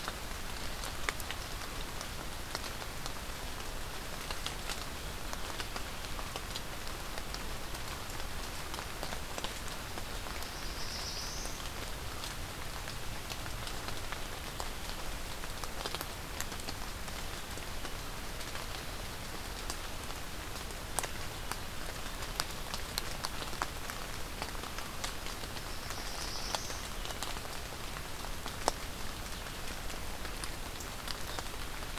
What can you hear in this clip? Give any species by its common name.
Black-throated Blue Warbler